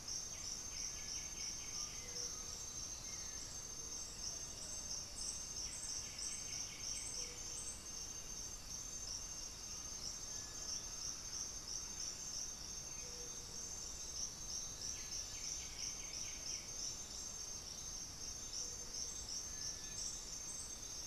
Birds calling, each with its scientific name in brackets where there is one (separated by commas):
Black-throated Antbird (Myrmophylax atrothorax), Cinereous Tinamou (Crypturellus cinereus), unidentified bird, Undulated Tinamou (Crypturellus undulatus), Buff-throated Woodcreeper (Xiphorhynchus guttatus), White-winged Becard (Pachyramphus polychopterus)